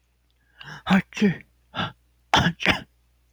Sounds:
Sneeze